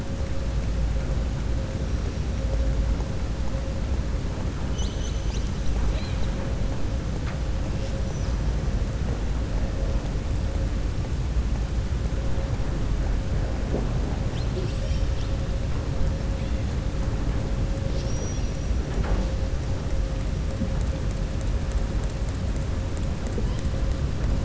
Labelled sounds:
5.8	6.3	killer whale, southern resident, 1.7 to 4.6 kHz
17.8	18.6	killer whale, southern resident, 3.3 to 6.1 kHz

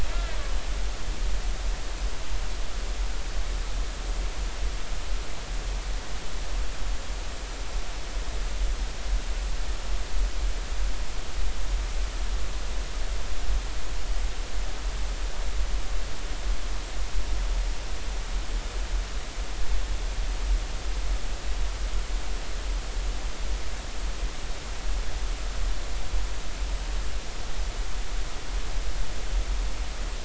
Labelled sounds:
0.1	0.4	killer whale, northern resident, 1.6 to 1.8 kHz

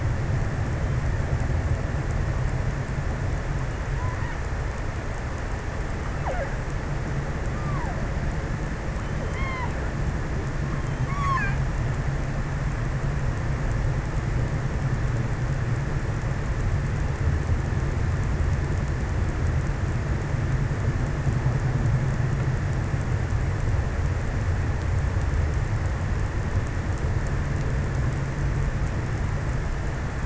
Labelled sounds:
3.6	5.1	killer whale, offshore, 0.51 to 2.5 kHz
6.0	6.8	killer whale, offshore, 0.24 to 2.5 kHz
7.2	8.1	killer whale, offshore, 0.51 to 3.1 kHz
8.8	10.2	killer whale, offshore, 0.51 to 4.8 kHz
10.9	12.1	killer whale, offshore, 0.81 to 5.7 kHz

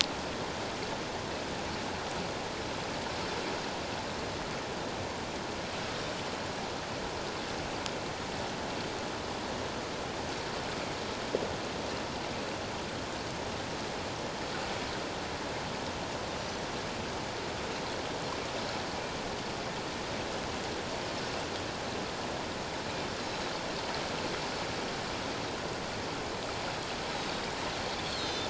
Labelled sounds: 16.4	16.6	Pacific white-sided dolphin, 5.8 to 6.2 kHz
23.2	23.5	Pacific white-sided dolphin, 6.5 to 6.8 kHz
27.1	27.5	Pacific white-sided dolphin, 3.7 to 4.0 kHz
28.1	28.4	Pacific white-sided dolphin, 3.5 to 4.4 kHz

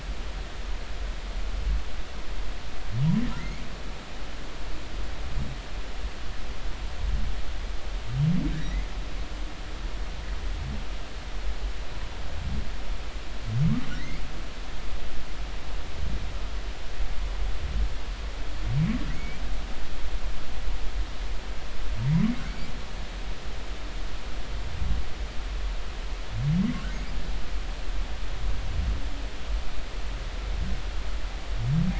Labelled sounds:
3.4	3.6	humpback whale, 1.8 to 2.3 kHz
8.5	8.9	humpback whale, 1.5 to 2.2 kHz
19.1	19.4	humpback whale, 1.9 to 2.4 kHz

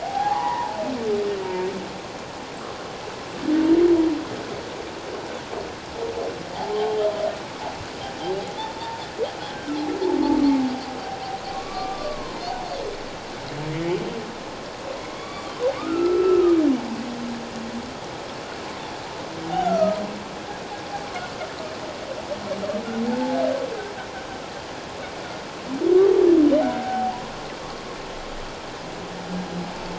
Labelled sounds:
8.8	9.0	humpback whale, 0.88 to 0.97 kHz
11.5	12.4	humpback whale, 0.97 to 1.2 kHz
15.2	16.6	humpback whale, 1.1 to 3.5 kHz
19.6	20.0	humpback whale, 1.2 to 1.5 kHz
23.1	23.4	humpback whale, 0.78 to 0.94 kHz
26.6	27.2	humpback whale, 0.78 to 1.0 kHz

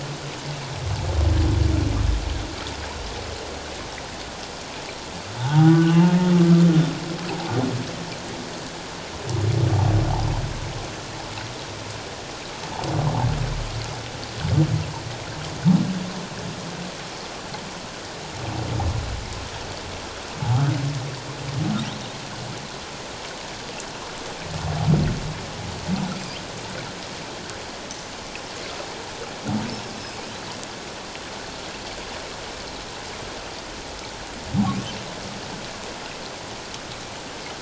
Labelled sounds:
5.4	6.1	humpback whale, 0.78 to 3.1 kHz
7.3	7.5	humpback whale, 0.78 to 1.0 kHz

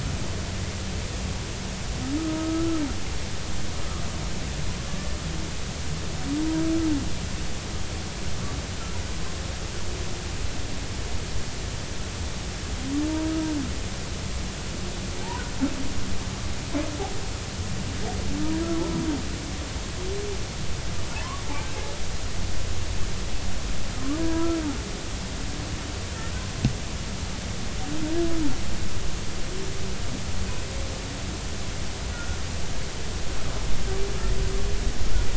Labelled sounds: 2.2	2.8	humpback whale, 1.2 to 1.4 kHz
24.2	24.6	humpback whale, 0.93 to 1.7 kHz
32.1	32.4	humpback whale, 1.3 to 1.5 kHz

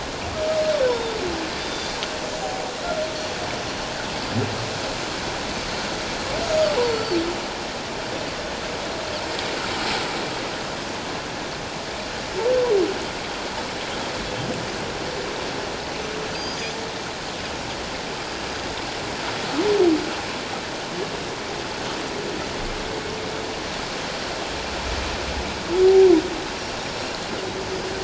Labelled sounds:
0.9	1.2	Pacific white-sided dolphin, 3.5 to 3.7 kHz
1.6	2.0	Pacific white-sided dolphin, 3.5 to 6.0 kHz
6.4	7.2	Pacific white-sided dolphin, 4.2 to 6.7 kHz
16.3	16.6	Pacific white-sided dolphin, 4.6 to 5.0 kHz
26.8	27.1	Pacific white-sided dolphin, 5.4 to 5.7 kHz

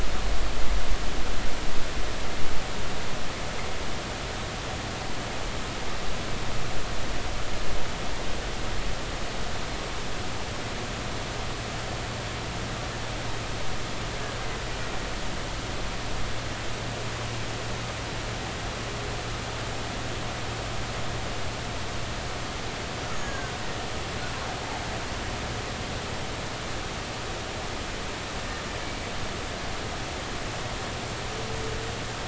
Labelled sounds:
23.1	23.5	killer whale, Bigg's (transient), 1.5 to 6.7 kHz

